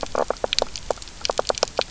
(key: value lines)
label: biophony, knock croak
recorder: SoundTrap 300